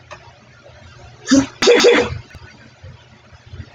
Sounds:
Sneeze